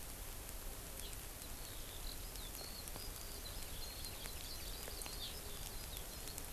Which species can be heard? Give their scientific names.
Alauda arvensis, Chlorodrepanis virens